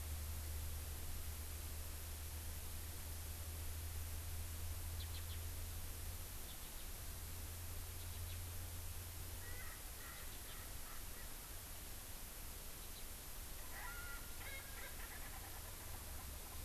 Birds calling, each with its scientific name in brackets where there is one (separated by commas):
Erckel's Francolin (Pternistis erckelii), House Finch (Haemorhous mexicanus)